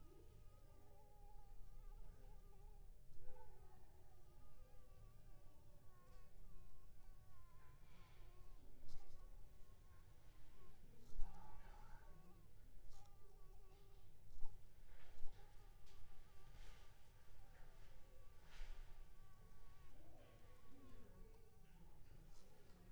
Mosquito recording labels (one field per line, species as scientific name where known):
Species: Anopheles squamosus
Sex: female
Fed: blood-fed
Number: one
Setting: cup